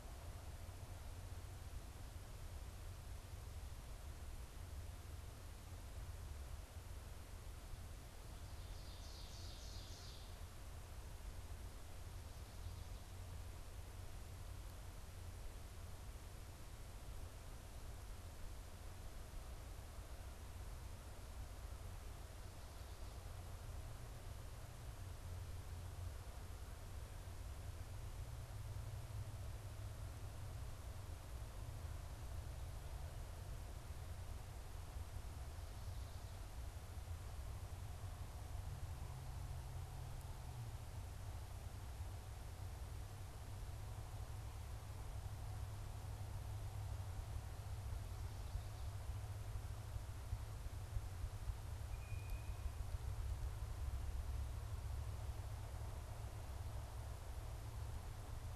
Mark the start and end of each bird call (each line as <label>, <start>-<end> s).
Ovenbird (Seiurus aurocapilla), 8.4-10.7 s
Blue Jay (Cyanocitta cristata), 51.7-52.6 s